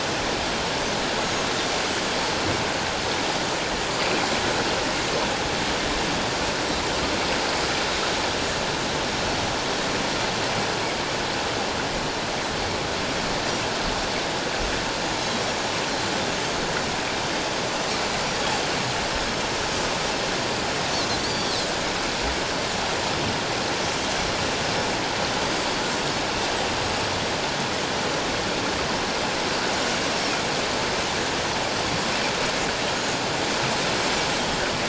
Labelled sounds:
1.2	1.5	Pacific white-sided dolphin, 6.4 to 6.7 kHz
21.2	21.6	Pacific white-sided dolphin, 4.2 to 5.9 kHz

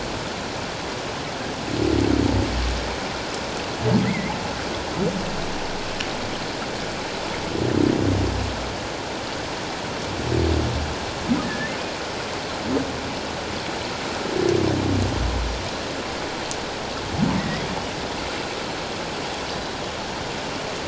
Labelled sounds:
4.0	4.3	humpback whale, 1.9 to 2.2 kHz
11.4	11.7	humpback whale, 1.7 to 1.9 kHz
17.4	17.6	humpback whale, 1.8 to 2.1 kHz

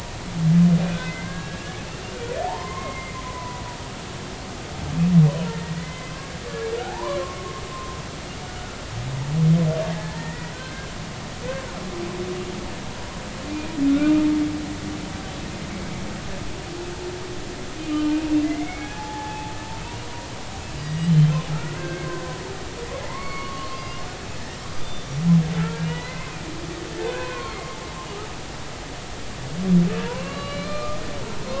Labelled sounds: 1.1	1.8	humpback whale, 0.99 to 1.8 kHz
2.4	3.6	humpback whale, 0.80 to 2.2 kHz
5.5	6.1	humpback whale, 0.86 to 2.1 kHz
6.8	8.0	humpback whale, 0.80 to 1.2 kHz
8.5	8.8	humpback whale, 1.3 to 1.5 kHz
9.8	10.9	humpback whale, 1.5 to 2.0 kHz
13.5	14.3	humpback whale, 1.1 to 2.5 kHz
18.4	19.5	humpback whale, 0.80 to 2.3 kHz
20.8	22.4	humpback whale, 0.96 to 3.2 kHz
23.0	24.0	humpback whale, 0.86 to 5.1 kHz
24.7	25.1	humpback whale, 3.4 to 4.9 kHz
25.8	26.4	humpback whale, 0.90 to 3.0 kHz
27.0	27.8	humpback whale, 0.93 to 4.4 kHz
30.0	31.0	humpback whale, 0.90 to 4.3 kHz

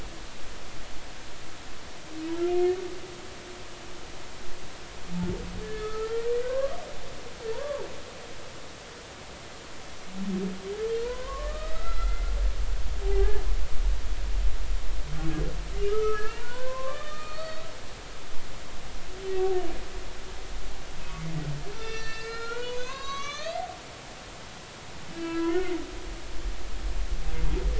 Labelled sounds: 5.6	6.8	humpback whale, 0.96 to 4.4 kHz
7.5	7.8	humpback whale, 0.83 to 1.2 kHz
11.0	12.3	humpback whale, 0.93 to 4.1 kHz
13.0	13.4	humpback whale, 0.80 to 1.8 kHz
15.9	17.7	humpback whale, 0.90 to 4.5 kHz
21.7	23.7	humpback whale, 0.99 to 7.2 kHz
25.1	25.8	humpback whale, 1.3 to 2.7 kHz

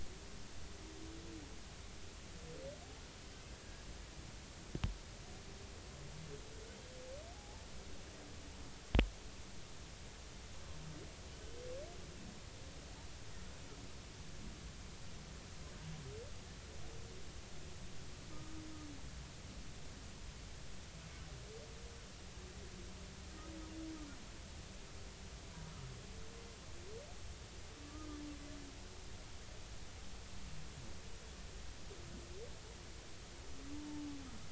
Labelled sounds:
3.6	3.9	humpback whale, 1.6 to 1.7 kHz
7.3	7.6	humpback whale, 0.80 to 0.93 kHz
11.3	11.6	humpback whale, 2.8 to 3.1 kHz
18.3	18.6	humpback whale, 1.2 to 1.3 kHz
27.8	28.2	humpback whale, 1.1 to 1.4 kHz

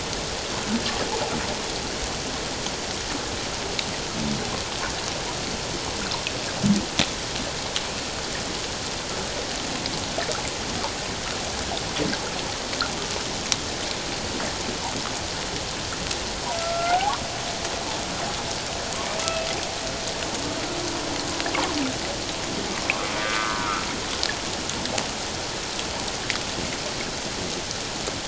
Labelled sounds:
16.6	17.2	humpback whale, 0.78 to 1.6 kHz
22.9	23.6	humpback whale, 1.0 to 1.7 kHz

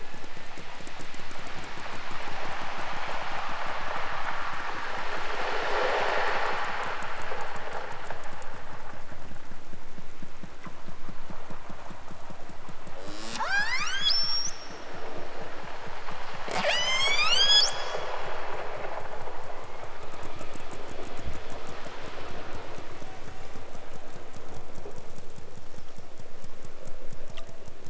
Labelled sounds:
1.0	1.7	killer whale, southern Alaska resident, 3.5 to 6.0 kHz
12.9	14.8	killer whale, southern Alaska resident, 0.18 to 8.0 kHz
16.4	17.9	killer whale, southern Alaska resident, 0.32 to 8.0 kHz
19.6	20.6	killer whale, southern Alaska resident, 2.8 to 6.0 kHz

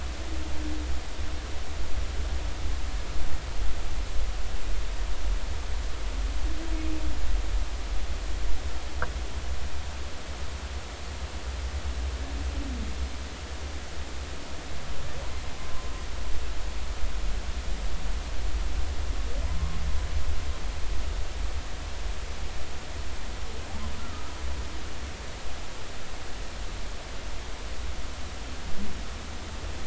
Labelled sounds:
15.6	15.9	humpback whale, 0.99 to 1.2 kHz
24.0	24.2	humpback whale, 1.2 to 1.4 kHz

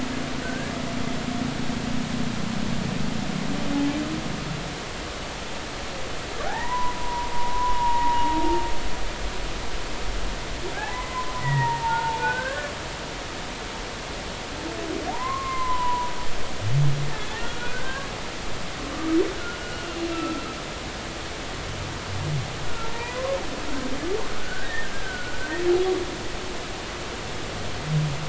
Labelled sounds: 0.4	0.7	humpback whale, 1.4 to 1.7 kHz
6.5	8.3	humpback whale, 0.80 to 2.0 kHz
10.9	12.7	humpback whale, 0.83 to 2.6 kHz
15.1	16.1	humpback whale, 0.80 to 2.2 kHz
17.1	18.1	humpback whale, 1.4 to 2.6 kHz
18.9	20.4	humpback whale, 1.1 to 1.5 kHz
20.7	21.0	humpback whale, 2.8 to 2.9 kHz
22.6	23.4	humpback whale, 0.86 to 2.0 kHz
24.4	25.4	humpback whale, 1.4 to 1.9 kHz

